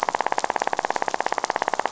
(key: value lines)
label: biophony, rattle
recorder: SoundTrap 500